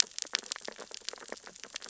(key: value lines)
label: biophony, sea urchins (Echinidae)
recorder: SoundTrap 600 or HydroMoth